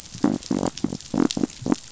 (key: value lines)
label: biophony
recorder: SoundTrap 500